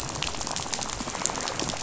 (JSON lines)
{"label": "biophony, rattle", "recorder": "SoundTrap 500"}